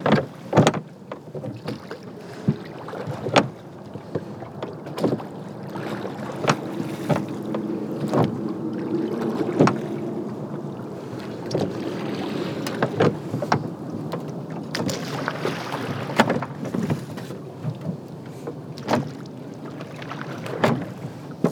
Is there a boat in the water?
yes